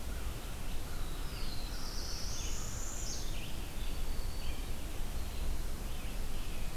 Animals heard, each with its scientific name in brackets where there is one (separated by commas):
American Crow (Corvus brachyrhynchos), Red-eyed Vireo (Vireo olivaceus), Black-throated Blue Warbler (Setophaga caerulescens), Black-throated Green Warbler (Setophaga virens), Northern Parula (Setophaga americana)